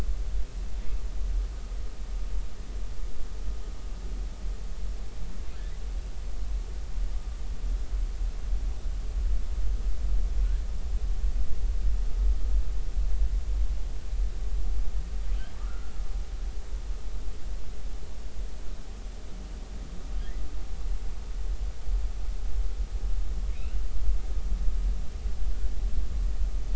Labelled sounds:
15.6	15.9	humpback whale, 1.1 to 1.5 kHz

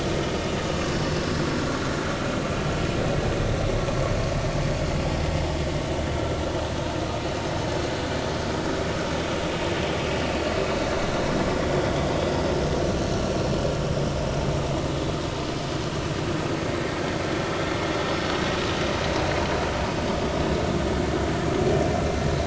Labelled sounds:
6.2	6.4	vessel noise, 1.2 to 1.4 kHz
11.6	12.1	vessel noise, 3.2 to 3.6 kHz

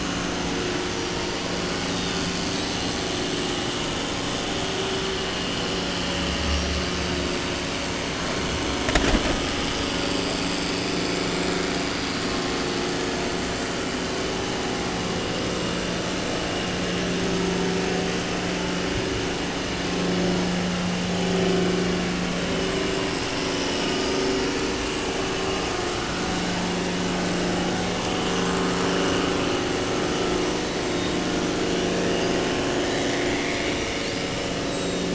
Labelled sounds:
0.8	1.2	killer whale, 5.4 to 6.5 kHz
1.7	3.0	killer whale, 3.1 to 8.0 kHz
6.4	6.8	killer whale, 5.0 to 6.2 kHz
30.5	31.2	killer whale, 3.3 to 8.0 kHz
31.7	33.2	killer whale, 3.3 to 6.0 kHz
34.0	35.1	killer whale, 3.1 to 8.0 kHz

